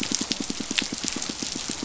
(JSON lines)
{"label": "biophony, pulse", "recorder": "SoundTrap 500"}